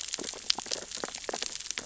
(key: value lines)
label: biophony, sea urchins (Echinidae)
recorder: SoundTrap 600 or HydroMoth